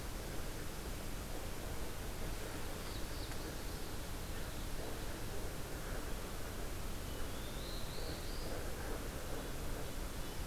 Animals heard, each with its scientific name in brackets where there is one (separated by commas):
Black-throated Blue Warbler (Setophaga caerulescens)